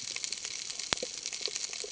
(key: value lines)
label: ambient
recorder: HydroMoth